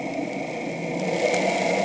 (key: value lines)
label: anthrophony, boat engine
recorder: HydroMoth